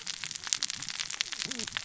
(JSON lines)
{"label": "biophony, cascading saw", "recorder": "SoundTrap 600 or HydroMoth"}